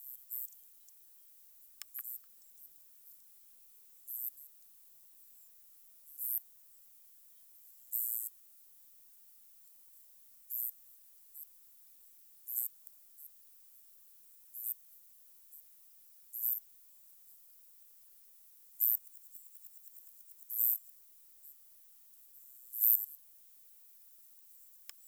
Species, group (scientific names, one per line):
Odontura aspericauda
Orthoptera